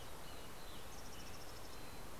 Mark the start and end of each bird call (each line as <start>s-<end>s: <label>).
0.8s-2.2s: Mountain Chickadee (Poecile gambeli)
1.6s-2.2s: Red-breasted Nuthatch (Sitta canadensis)